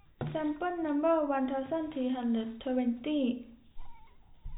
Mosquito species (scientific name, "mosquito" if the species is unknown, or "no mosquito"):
no mosquito